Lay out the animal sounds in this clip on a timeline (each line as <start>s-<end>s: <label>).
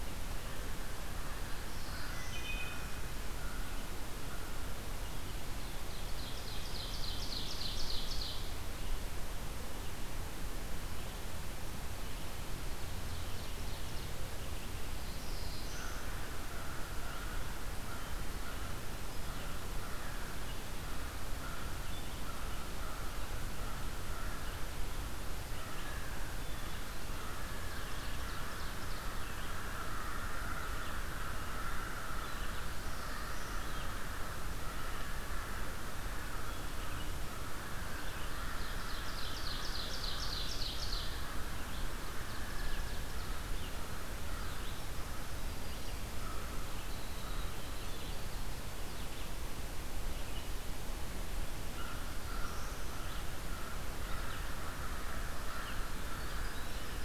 1.3s-2.8s: Black-throated Blue Warbler (Setophaga caerulescens)
1.7s-6.3s: American Crow (Corvus brachyrhynchos)
2.1s-3.1s: Wood Thrush (Hylocichla mustelina)
5.4s-8.6s: Ovenbird (Seiurus aurocapilla)
12.6s-14.1s: Ovenbird (Seiurus aurocapilla)
14.8s-16.3s: Black-throated Blue Warbler (Setophaga caerulescens)
15.4s-44.7s: American Crow (Corvus brachyrhynchos)
19.1s-50.6s: Red-eyed Vireo (Vireo olivaceus)
27.0s-29.2s: Ovenbird (Seiurus aurocapilla)
32.3s-33.7s: Black-throated Blue Warbler (Setophaga caerulescens)
38.0s-41.1s: Ovenbird (Seiurus aurocapilla)
41.9s-43.5s: Ovenbird (Seiurus aurocapilla)
44.3s-48.6s: Winter Wren (Troglodytes hiemalis)
46.1s-47.7s: American Crow (Corvus brachyrhynchos)
51.5s-57.0s: American Crow (Corvus brachyrhynchos)
51.6s-57.0s: Red-eyed Vireo (Vireo olivaceus)
51.9s-53.0s: Black-throated Blue Warbler (Setophaga caerulescens)
55.2s-57.0s: Winter Wren (Troglodytes hiemalis)